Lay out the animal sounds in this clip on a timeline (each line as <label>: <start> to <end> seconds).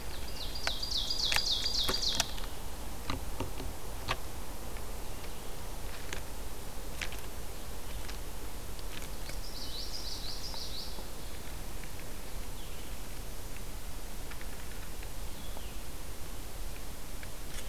Ovenbird (Seiurus aurocapilla): 0.0 to 2.5 seconds
Common Yellowthroat (Geothlypis trichas): 9.2 to 11.1 seconds
Blue-headed Vireo (Vireo solitarius): 9.4 to 17.7 seconds